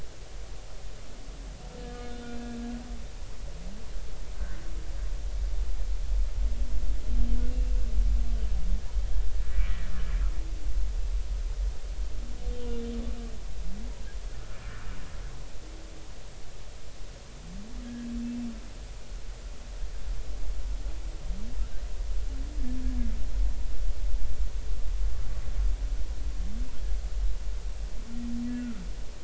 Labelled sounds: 1.8	3.2	humpback whale, 1.2 to 3.7 kHz
9.7	9.9	humpback whale, 1.7 to 2.0 kHz
17.8	18.1	humpback whale, 1.6 to 1.9 kHz
28.6	28.8	humpback whale, 1.3 to 1.5 kHz

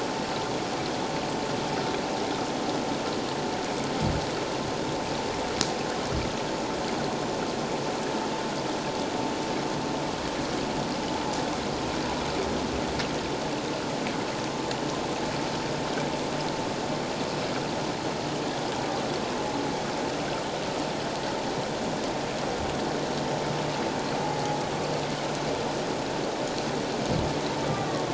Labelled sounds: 24.2	24.6	humpback whale, 0.78 to 0.88 kHz
27.7	28.0	humpback whale, 1.1 to 1.2 kHz

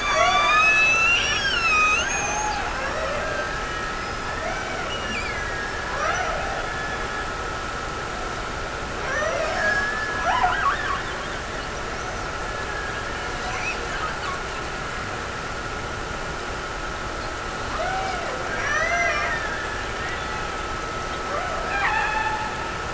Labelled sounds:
2.7	7.3	killer whale, Bigg's (transient), Gulf of Alaska transient, 0.32 to 3.1 kHz
8.9	10.4	killer whale, Bigg's (transient), Gulf of Alaska transient, 0.36 to 2.3 kHz
17.7	20.3	killer whale, Bigg's (transient), Gulf of Alaska transient, 0.36 to 6.0 kHz
21.2	22.7	killer whale, Bigg's (transient), Gulf of Alaska transient, 0.46 to 3.6 kHz

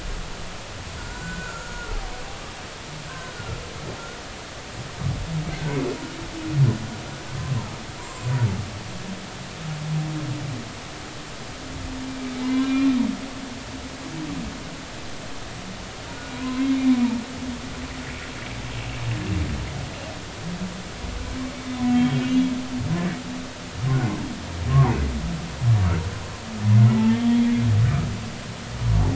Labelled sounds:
1.0	1.9	humpback whale, 1.3 to 7.5 kHz
3.0	3.3	humpback whale, 1.5 to 1.6 kHz
5.5	5.8	humpback whale, 1.5 to 1.6 kHz
12.2	12.9	humpback whale, 0.83 to 4.1 kHz
16.3	16.7	humpback whale, 0.96 to 1.1 kHz
21.5	22.5	humpback whale, 2.2 to 3.6 kHz
24.7	25.0	humpback whale, 0.80 to 1.2 kHz
27.1	27.3	humpback whale, 3.1 to 3.3 kHz

